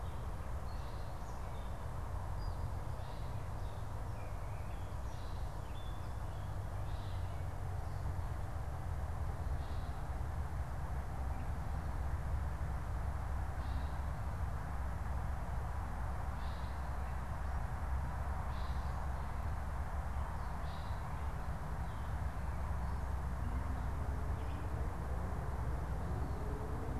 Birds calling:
Gray Catbird (Dumetella carolinensis), Veery (Catharus fuscescens)

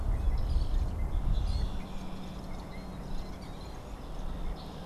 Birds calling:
unidentified bird, American Robin (Turdus migratorius)

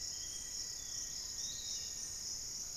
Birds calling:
Piratic Flycatcher (Legatus leucophaius), Black-faced Antthrush (Formicarius analis), Long-winged Antwren (Myrmotherula longipennis)

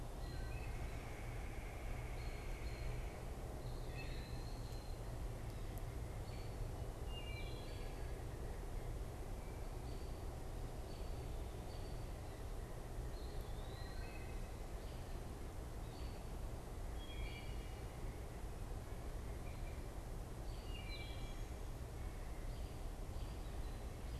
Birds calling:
American Robin (Turdus migratorius), Eastern Wood-Pewee (Contopus virens), Wood Thrush (Hylocichla mustelina), Red-bellied Woodpecker (Melanerpes carolinus)

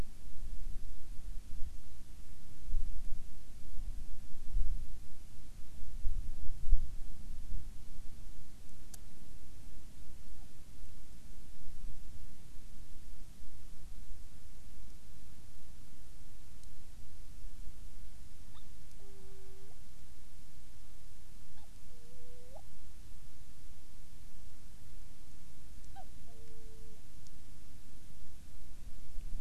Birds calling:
Hawaiian Petrel (Pterodroma sandwichensis)

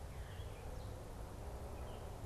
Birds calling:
Gray Catbird (Dumetella carolinensis), Veery (Catharus fuscescens)

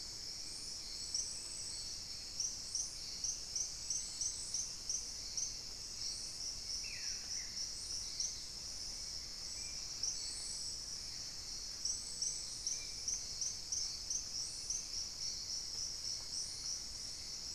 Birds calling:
Spot-winged Antshrike (Pygiptila stellaris), Ruddy Quail-Dove (Geotrygon montana)

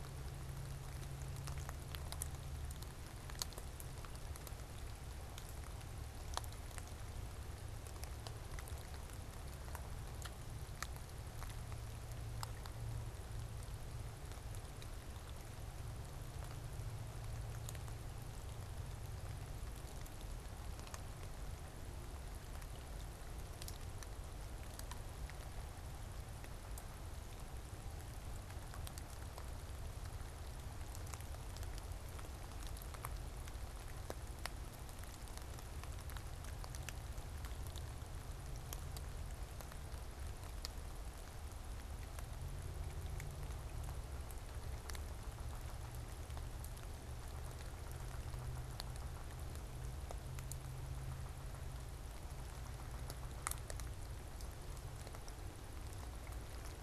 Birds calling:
unidentified bird

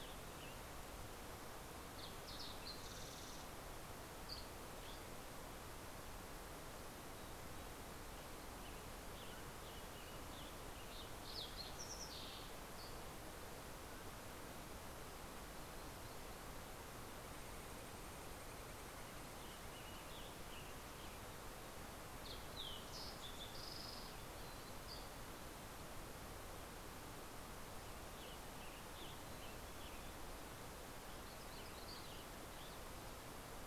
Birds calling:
Fox Sparrow (Passerella iliaca), Dusky Flycatcher (Empidonax oberholseri), Mountain Quail (Oreortyx pictus), Western Tanager (Piranga ludoviciana)

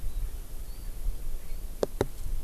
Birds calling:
Erckel's Francolin (Pternistis erckelii)

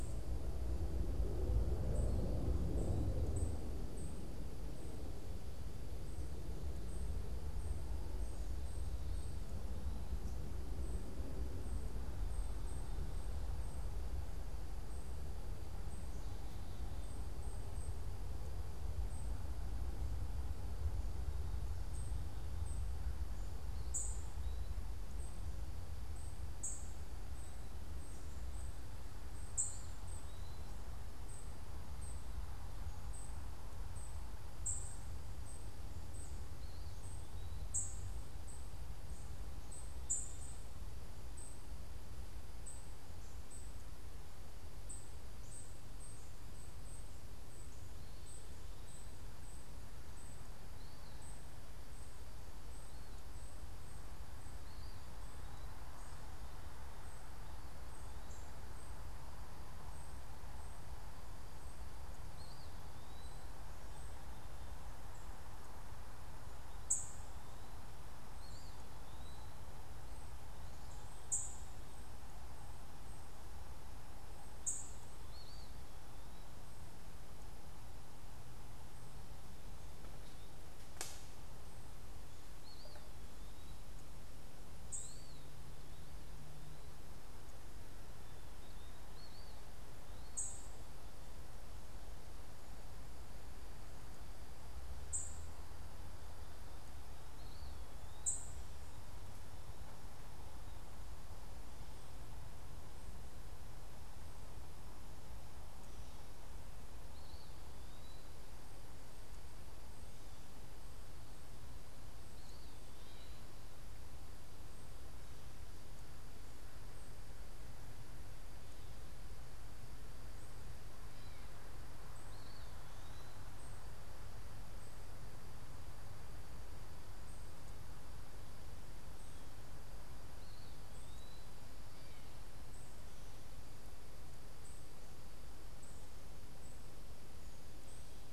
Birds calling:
Eastern Wood-Pewee (Contopus virens), unidentified bird

